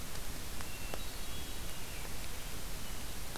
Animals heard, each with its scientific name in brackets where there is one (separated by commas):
Hermit Thrush (Catharus guttatus), American Robin (Turdus migratorius)